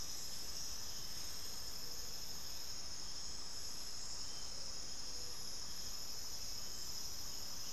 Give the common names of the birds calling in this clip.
unidentified bird